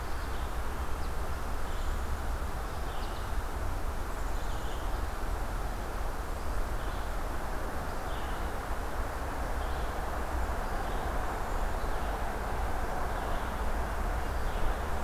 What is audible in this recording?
Red-eyed Vireo, Black-capped Chickadee